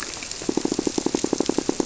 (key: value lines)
label: biophony
recorder: SoundTrap 300